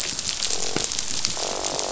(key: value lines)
label: biophony, croak
recorder: SoundTrap 500